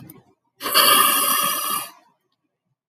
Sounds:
Sniff